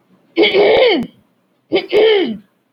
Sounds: Throat clearing